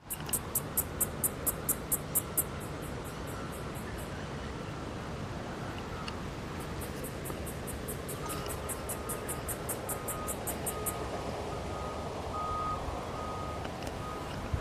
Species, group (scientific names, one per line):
Yoyetta celis
Cicadidae